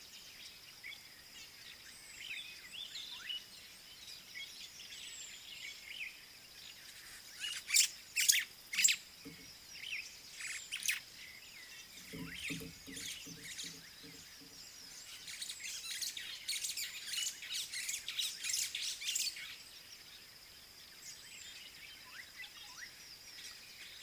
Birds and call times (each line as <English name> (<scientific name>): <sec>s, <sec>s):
White-browed Sparrow-Weaver (Plocepasser mahali): 8.2s, 10.8s, 16.6s, 18.8s
Slate-colored Boubou (Laniarius funebris): 22.8s